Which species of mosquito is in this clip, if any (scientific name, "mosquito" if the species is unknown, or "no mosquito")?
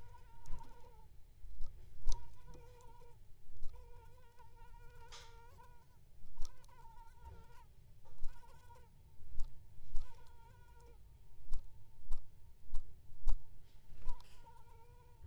Anopheles gambiae s.l.